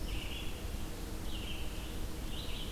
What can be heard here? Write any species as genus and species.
Vireo olivaceus